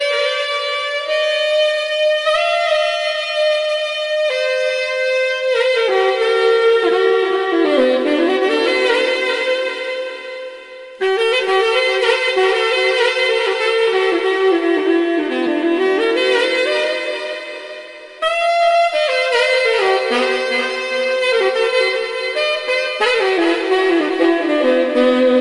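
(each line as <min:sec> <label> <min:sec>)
0:00.0 Saxophone music is playing. 0:25.4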